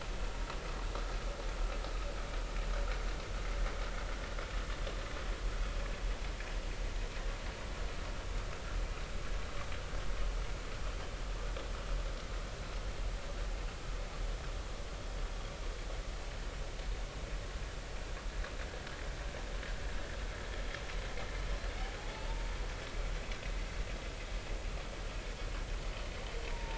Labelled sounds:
22.0	22.3	humpback whale, 0.80 to 0.93 kHz
26.5	26.7	humpback whale, 0.86 to 0.99 kHz

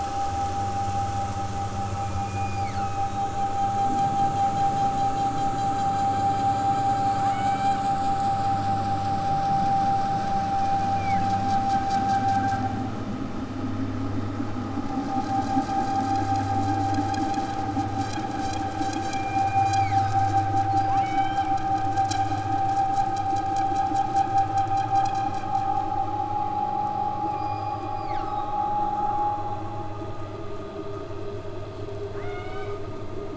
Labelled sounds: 2.0	3.2	killer whale, southern Alaska resident, 1.1 to 5.5 kHz
7.2	7.8	killer whale, southern Alaska resident, 1.6 to 4.5 kHz
10.5	11.4	killer whale, southern Alaska resident, 1.6 to 6.4 kHz
18.9	20.2	killer whale, southern Alaska resident, 1.7 to 5.7 kHz
20.9	21.5	killer whale, southern Alaska resident, 1.9 to 7.4 kHz
27.2	28.7	killer whale, southern Alaska resident, 1.2 to 8.0 kHz
32.1	32.8	killer whale, southern Alaska resident, 1.3 to 8.0 kHz

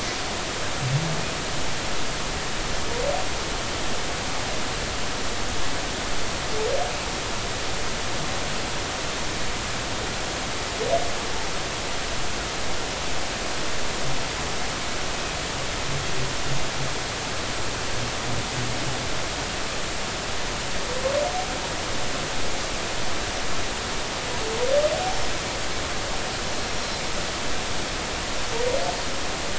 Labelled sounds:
25.1	25.3	Pacific white-sided dolphin, 5.2 to 5.4 kHz
26.6	27.0	Pacific white-sided dolphin, 5.4 to 5.6 kHz

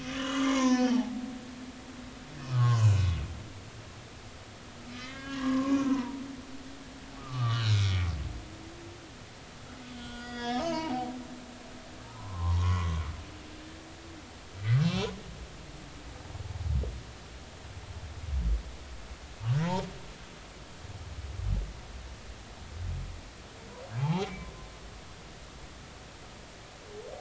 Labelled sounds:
0.0	1.1	humpback whale, 0.80 to 6.6 kHz
2.5	3.1	humpback whale, 0.93 to 7.0 kHz
4.9	6.2	humpback whale, 0.90 to 6.3 kHz
7.2	8.1	humpback whale, 0.99 to 2.4 kHz
9.9	11.1	humpback whale, 0.80 to 5.5 kHz
12.0	13.0	humpback whale, 0.83 to 1.2 kHz
14.8	15.1	humpback whale, 2.6 to 2.8 kHz
19.6	19.9	humpback whale, 0.83 to 7.0 kHz
24.0	24.5	humpback whale, 0.80 to 3.3 kHz

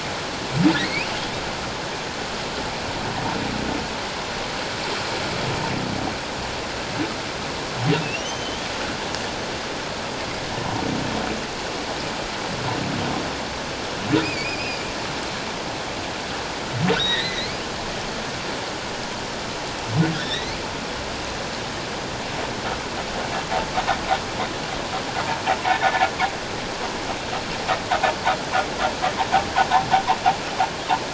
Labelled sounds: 0.7	1.4	humpback whale, 1.7 to 3.8 kHz
8.0	8.7	humpback whale, 2.5 to 3.4 kHz
14.2	14.9	humpback whale, 2.2 to 5.1 kHz
16.9	17.6	humpback whale, 1.8 to 4.3 kHz
20.1	20.6	humpback whale, 1.3 to 4.3 kHz
25.6	26.1	humpback whale, 1.7 to 1.9 kHz

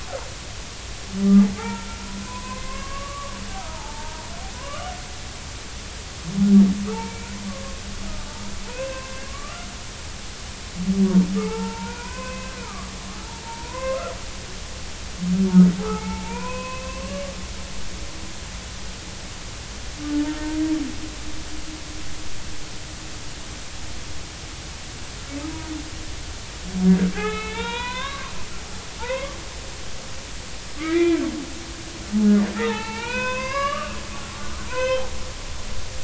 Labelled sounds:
1.6	1.9	humpback whale, 0.80 to 1.9 kHz
2.2	4.2	humpback whale, 0.80 to 2.2 kHz
4.5	4.9	humpback whale, 0.96 to 3.0 kHz
6.9	7.8	humpback whale, 0.83 to 2.5 kHz
8.7	9.6	humpback whale, 0.93 to 2.7 kHz
11.4	12.9	humpback whale, 0.83 to 2.7 kHz
13.4	14.0	humpback whale, 0.86 to 2.8 kHz
15.8	17.2	humpback whale, 0.80 to 2.9 kHz
20.1	20.4	humpback whale, 0.83 to 0.96 kHz
27.2	28.3	humpback whale, 0.80 to 4.2 kHz
29.0	29.4	humpback whale, 0.83 to 2.3 kHz
30.8	31.2	humpback whale, 1.1 to 2.5 kHz
32.5	34.0	humpback whale, 0.80 to 5.2 kHz
34.7	35.0	humpback whale, 0.93 to 3.2 kHz

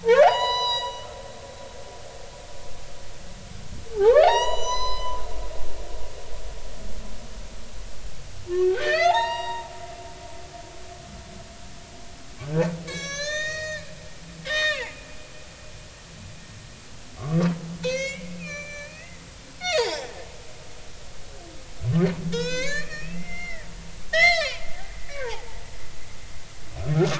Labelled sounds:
0.0	1.1	humpback whale, 0.80 to 7.9 kHz
3.9	5.2	humpback whale, 0.80 to 8.0 kHz
8.5	10.6	humpback whale, 0.80 to 7.6 kHz
12.9	13.9	humpback whale, 1.1 to 7.6 kHz
14.4	14.9	humpback whale, 0.80 to 5.6 kHz
17.2	19.2	humpback whale, 0.86 to 7.2 kHz
19.6	20.3	humpback whale, 0.80 to 5.3 kHz
22.3	23.7	humpback whale, 0.90 to 7.2 kHz
24.1	25.6	humpback whale, 0.80 to 5.7 kHz

